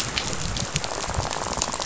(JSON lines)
{"label": "biophony, rattle", "recorder": "SoundTrap 500"}